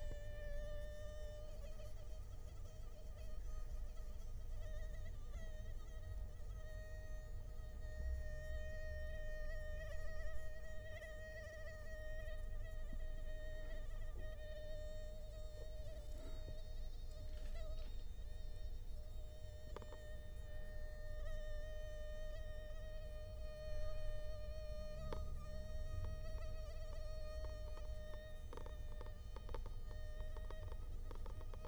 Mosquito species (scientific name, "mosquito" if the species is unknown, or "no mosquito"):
Culex quinquefasciatus